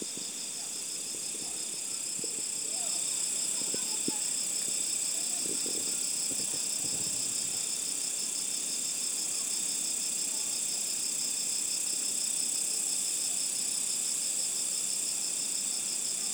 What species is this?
Mecopoda elongata